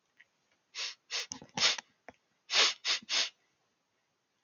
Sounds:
Sniff